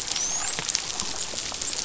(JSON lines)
{"label": "biophony, dolphin", "recorder": "SoundTrap 500"}